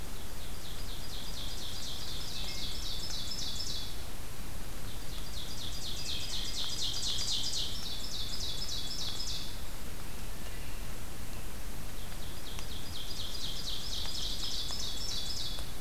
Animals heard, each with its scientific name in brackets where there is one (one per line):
Wood Thrush (Hylocichla mustelina)
Ovenbird (Seiurus aurocapilla)